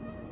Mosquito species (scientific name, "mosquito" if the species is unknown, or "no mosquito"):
Anopheles albimanus